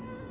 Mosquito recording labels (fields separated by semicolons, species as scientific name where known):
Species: Anopheles stephensi; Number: one; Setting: insect culture